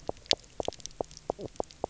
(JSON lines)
{"label": "biophony, knock croak", "recorder": "SoundTrap 300"}